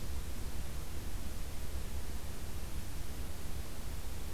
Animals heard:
forest ambience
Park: Acadia National Park